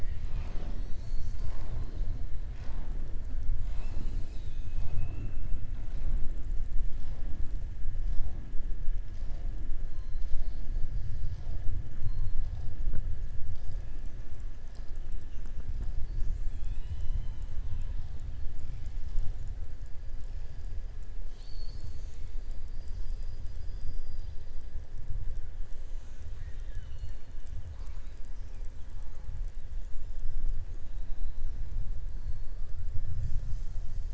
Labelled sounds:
12.0	12.7	killer whale, southern resident, 3.3 to 5.1 kHz
21.2	22.6	killer whale, southern resident, 2.3 to 7.8 kHz
25.9	27.4	killer whale, southern resident, 1.4 to 7.6 kHz

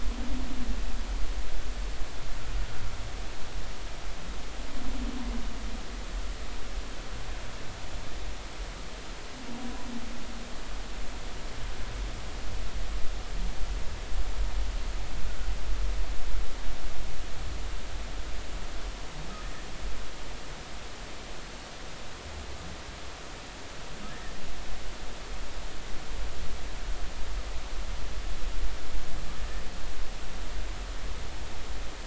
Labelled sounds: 24.1	24.4	humpback whale, 1.6 to 1.9 kHz

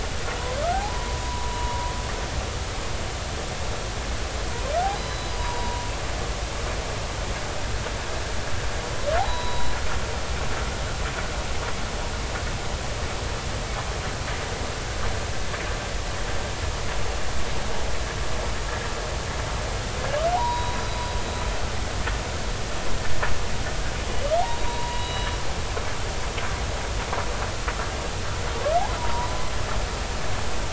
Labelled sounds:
0.7	1.9	humpback whale, 0.80 to 1.1 kHz
4.9	5.7	humpback whale, 3.9 to 5.0 kHz
6.3	6.9	humpback whale, 0.83 to 1.0 kHz
9.2	9.8	humpback whale, 0.93 to 4.0 kHz
20.3	21.0	humpback whale, 0.80 to 4.9 kHz
24.1	25.3	humpback whale, 0.90 to 4.0 kHz
29.0	29.3	humpback whale, 0.90 to 1.0 kHz

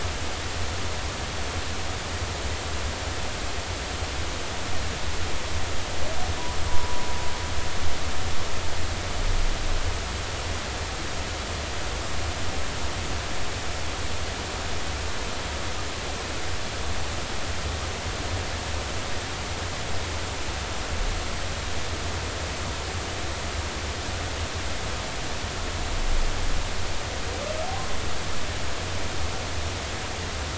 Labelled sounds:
6.7	7.0	humpback whale, 0.90 to 1.1 kHz

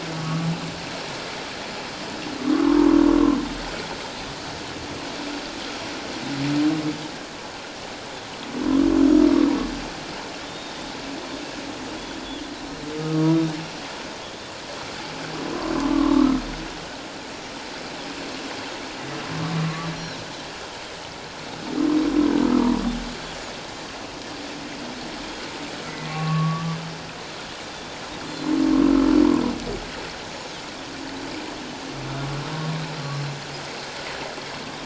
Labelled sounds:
0.1	0.5	humpback whale, 1.1 to 1.3 kHz
10.4	10.7	Pacific white-sided dolphin, 3.4 to 3.8 kHz
13.1	13.4	humpback whale, 1.1 to 1.2 kHz
15.8	16.4	humpback whale, 1.0 to 1.4 kHz
19.6	19.9	humpback whale, 1.0 to 1.2 kHz
25.9	26.8	humpback whale, 1.0 to 2.8 kHz
28.3	28.5	Pacific white-sided dolphin, 4.0 to 4.4 kHz
28.9	29.2	humpback whale, 1.2 to 1.4 kHz

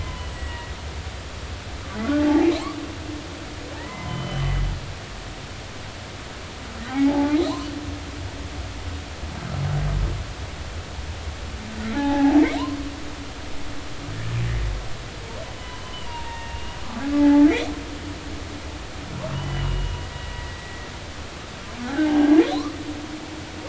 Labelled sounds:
0.0	0.7	humpback whale, 0.96 to 8.0 kHz
2.0	2.5	humpback whale, 0.80 to 1.5 kHz
3.8	4.5	humpback whale, 0.90 to 3.2 kHz
6.9	7.4	humpback whale, 0.80 to 0.93 kHz
11.9	12.4	humpback whale, 0.80 to 1.8 kHz
15.5	16.8	humpback whale, 0.86 to 3.1 kHz
17.1	17.5	humpback whale, 0.80 to 2.0 kHz
19.3	20.6	humpback whale, 1.9 to 3.2 kHz
21.8	22.4	humpback whale, 0.80 to 1.8 kHz

